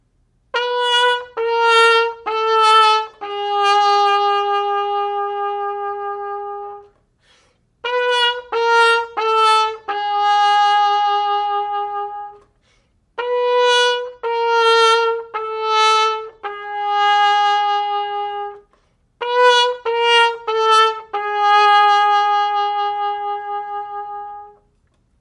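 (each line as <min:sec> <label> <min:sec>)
0:00.5 A trumpet plays a descending melody. 0:07.2
0:07.8 A trumpet plays a descending melody. 0:12.5
0:13.1 A trumpet plays a descending melody. 0:25.1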